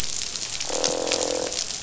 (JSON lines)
{"label": "biophony, croak", "recorder": "SoundTrap 500"}